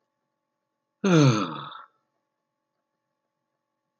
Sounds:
Sigh